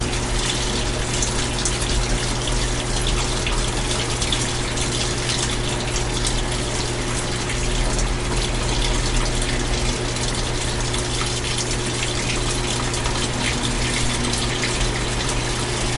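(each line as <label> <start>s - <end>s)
Quiet, steady whirring. 0.0s - 16.0s
Steady running water. 0.0s - 16.0s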